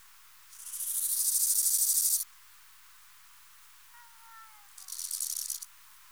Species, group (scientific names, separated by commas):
Chorthippus biguttulus, Orthoptera